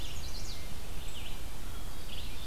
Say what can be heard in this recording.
Chestnut-sided Warbler, Red-eyed Vireo